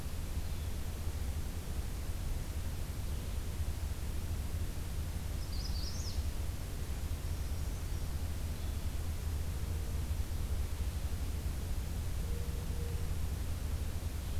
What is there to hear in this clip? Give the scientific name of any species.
Setophaga magnolia, Certhia americana